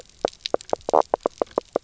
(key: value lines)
label: biophony, knock croak
recorder: SoundTrap 300